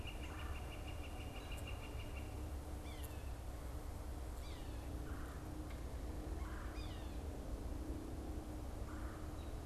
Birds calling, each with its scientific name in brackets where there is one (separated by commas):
Yellow-bellied Sapsucker (Sphyrapicus varius), Red-bellied Woodpecker (Melanerpes carolinus), American Robin (Turdus migratorius), Northern Flicker (Colaptes auratus)